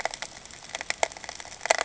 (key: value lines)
label: ambient
recorder: HydroMoth